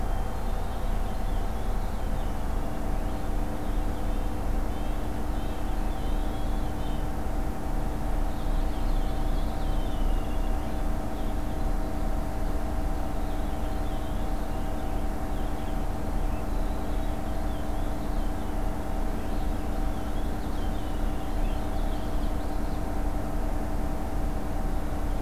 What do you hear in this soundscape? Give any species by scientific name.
Haemorhous purpureus, Sitta canadensis, Poecile atricapillus, Geothlypis trichas